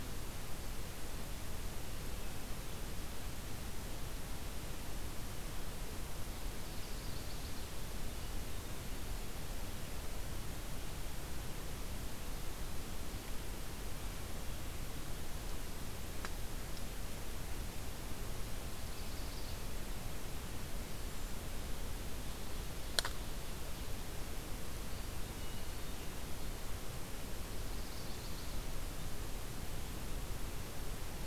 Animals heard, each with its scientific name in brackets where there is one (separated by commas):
Chestnut-sided Warbler (Setophaga pensylvanica), Ovenbird (Seiurus aurocapilla), Hermit Thrush (Catharus guttatus)